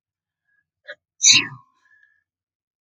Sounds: Sneeze